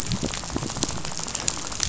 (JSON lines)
{"label": "biophony, rattle", "recorder": "SoundTrap 500"}